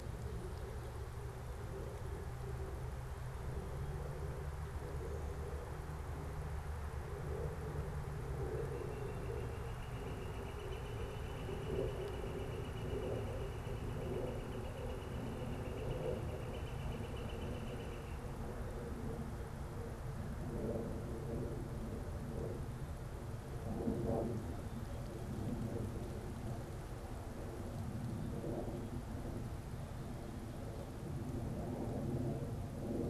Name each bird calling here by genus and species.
Colaptes auratus